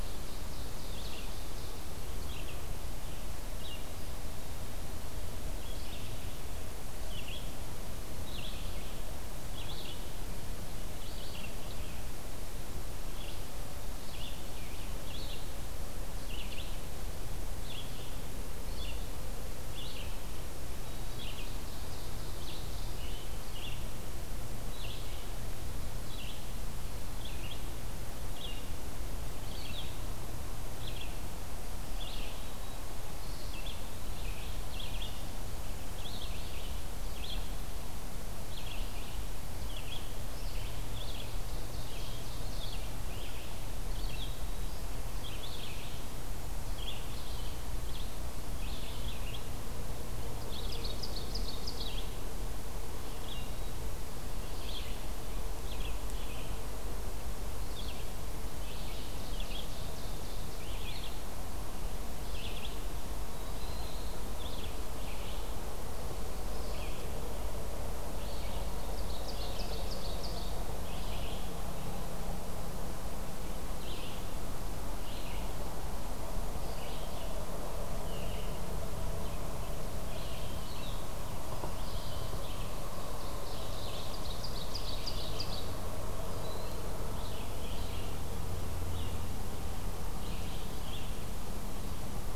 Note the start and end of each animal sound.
0.0s-41.4s: Red-eyed Vireo (Vireo olivaceus)
0.0s-1.9s: Ovenbird (Seiurus aurocapilla)
3.8s-5.5s: Eastern Wood-Pewee (Contopus virens)
21.2s-23.1s: Ovenbird (Seiurus aurocapilla)
33.0s-34.5s: Eastern Wood-Pewee (Contopus virens)
41.2s-42.8s: Ovenbird (Seiurus aurocapilla)
41.8s-92.4s: Red-eyed Vireo (Vireo olivaceus)
50.3s-52.2s: Ovenbird (Seiurus aurocapilla)
58.6s-61.1s: Ovenbird (Seiurus aurocapilla)
68.8s-70.4s: Ovenbird (Seiurus aurocapilla)
82.6s-85.7s: Ovenbird (Seiurus aurocapilla)

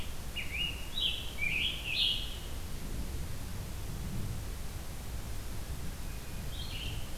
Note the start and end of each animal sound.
0.0s-2.6s: Scarlet Tanager (Piranga olivacea)
6.4s-7.2s: Red-eyed Vireo (Vireo olivaceus)

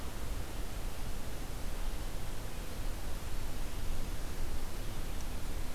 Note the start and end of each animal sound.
0.0s-5.7s: Red-eyed Vireo (Vireo olivaceus)

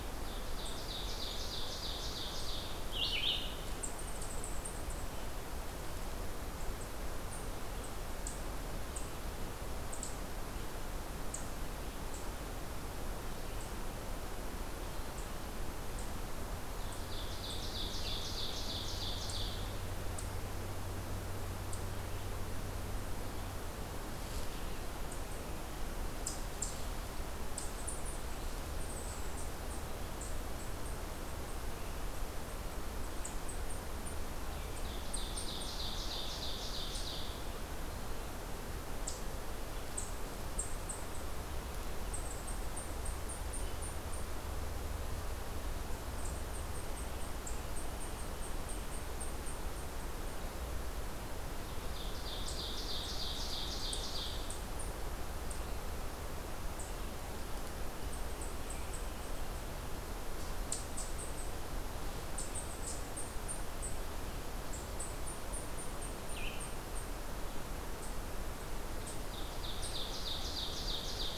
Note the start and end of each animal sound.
0.0s-2.9s: Ovenbird (Seiurus aurocapilla)
2.8s-3.7s: Red-eyed Vireo (Vireo olivaceus)
3.6s-5.2s: Eastern Chipmunk (Tamias striatus)
6.4s-14.1s: Eastern Chipmunk (Tamias striatus)
16.8s-20.0s: Ovenbird (Seiurus aurocapilla)
26.1s-31.6s: Eastern Chipmunk (Tamias striatus)
33.0s-35.8s: Eastern Chipmunk (Tamias striatus)
34.6s-37.6s: Ovenbird (Seiurus aurocapilla)
38.8s-44.4s: Eastern Chipmunk (Tamias striatus)
45.9s-50.5s: Eastern Chipmunk (Tamias striatus)
51.5s-54.6s: Ovenbird (Seiurus aurocapilla)
52.2s-59.5s: Eastern Chipmunk (Tamias striatus)
60.6s-71.4s: Eastern Chipmunk (Tamias striatus)
66.2s-66.8s: Red-eyed Vireo (Vireo olivaceus)
68.8s-71.4s: Ovenbird (Seiurus aurocapilla)

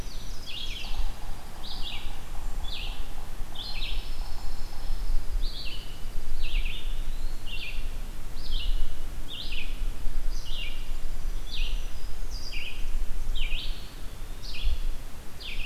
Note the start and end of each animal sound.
0.0s-1.2s: Ovenbird (Seiurus aurocapilla)
0.0s-15.7s: Red-eyed Vireo (Vireo olivaceus)
0.8s-4.9s: Yellow-bellied Sapsucker (Sphyrapicus varius)
0.9s-1.8s: Dark-eyed Junco (Junco hyemalis)
1.6s-2.9s: Blackburnian Warbler (Setophaga fusca)
3.6s-5.1s: Pine Warbler (Setophaga pinus)
5.1s-6.5s: Dark-eyed Junco (Junco hyemalis)
6.9s-7.6s: Eastern Wood-Pewee (Contopus virens)
10.0s-11.3s: Dark-eyed Junco (Junco hyemalis)
11.1s-12.4s: Black-throated Green Warbler (Setophaga virens)
12.4s-13.6s: Blackburnian Warbler (Setophaga fusca)
13.9s-14.6s: Eastern Wood-Pewee (Contopus virens)

